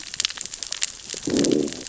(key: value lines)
label: biophony, growl
recorder: SoundTrap 600 or HydroMoth